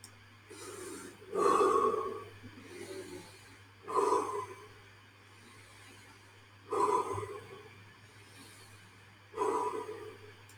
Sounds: Sigh